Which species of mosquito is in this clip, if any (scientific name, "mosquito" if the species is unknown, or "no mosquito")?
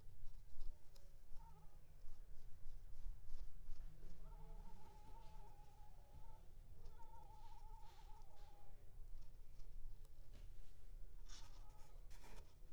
Anopheles squamosus